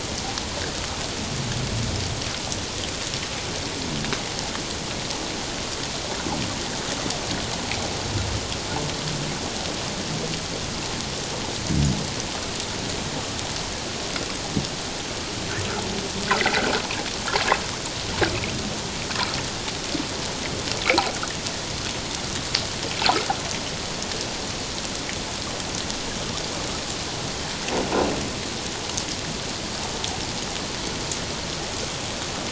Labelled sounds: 16.4	16.6	water noise, 1.8 to 2.2 kHz

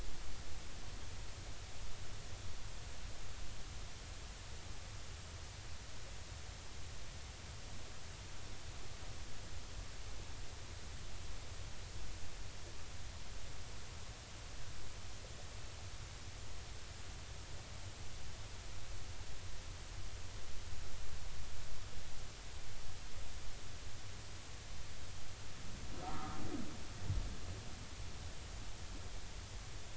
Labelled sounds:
26.0	26.4	humpback whale, 1.2 to 1.4 kHz

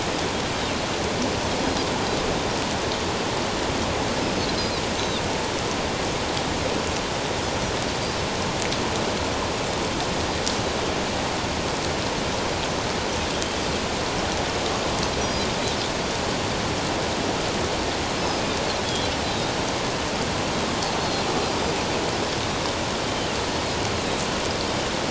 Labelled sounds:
4.2	4.4	Pacific white-sided dolphin, 5.0 to 5.2 kHz
5.0	5.2	Pacific white-sided dolphin, 3.5 to 4.0 kHz
18.2	18.5	Pacific white-sided dolphin, 4.9 to 5.3 kHz
21.0	21.2	Pacific white-sided dolphin, 4.1 to 4.4 kHz

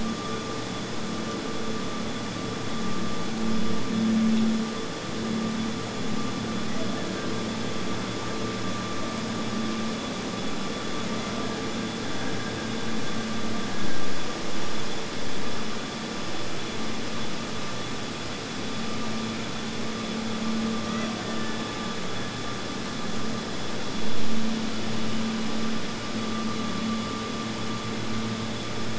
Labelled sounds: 6.5	8.7	killer whale, Bigg's (transient), Gulf of Alaska transient, 1.5 to 2.1 kHz
11.3	14.4	killer whale, Bigg's (transient), Gulf of Alaska transient, 1.5 to 1.8 kHz
20.8	23.6	killer whale, Bigg's (transient), Gulf of Alaska transient, 1.5 to 2.1 kHz

